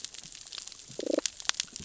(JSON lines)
{"label": "biophony, damselfish", "recorder": "SoundTrap 600 or HydroMoth"}